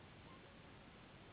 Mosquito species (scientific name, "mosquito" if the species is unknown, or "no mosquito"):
Anopheles gambiae s.s.